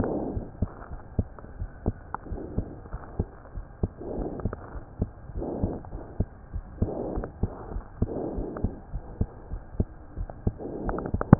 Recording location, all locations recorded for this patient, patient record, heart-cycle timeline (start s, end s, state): aortic valve (AV)
aortic valve (AV)+pulmonary valve (PV)+tricuspid valve (TV)+mitral valve (MV)
#Age: Child
#Sex: Female
#Height: 99.0 cm
#Weight: 17.2 kg
#Pregnancy status: False
#Murmur: Absent
#Murmur locations: nan
#Most audible location: nan
#Systolic murmur timing: nan
#Systolic murmur shape: nan
#Systolic murmur grading: nan
#Systolic murmur pitch: nan
#Systolic murmur quality: nan
#Diastolic murmur timing: nan
#Diastolic murmur shape: nan
#Diastolic murmur grading: nan
#Diastolic murmur pitch: nan
#Diastolic murmur quality: nan
#Outcome: Abnormal
#Campaign: 2015 screening campaign
0.00	0.87	unannotated
0.87	1.03	S1
1.03	1.14	systole
1.14	1.28	S2
1.28	1.56	diastole
1.56	1.72	S1
1.72	1.84	systole
1.84	1.96	S2
1.96	2.28	diastole
2.28	2.38	S1
2.38	2.54	systole
2.54	2.65	S2
2.65	2.91	diastole
2.91	3.01	S1
3.01	3.15	systole
3.15	3.27	S2
3.27	3.52	diastole
3.52	3.62	S1
3.62	3.77	systole
3.77	3.92	S2
3.92	4.17	diastole
4.17	4.27	S1
4.27	4.41	systole
4.41	4.51	S2
4.51	4.71	diastole
4.71	4.83	S1
4.83	4.98	systole
4.98	5.07	S2
5.07	5.32	diastole
5.32	5.45	S1
5.45	5.59	systole
5.59	5.70	S2
5.70	5.90	diastole
5.90	6.01	S1
6.01	6.16	systole
6.16	6.28	S2
6.28	6.53	diastole
6.53	6.62	S1
6.62	11.39	unannotated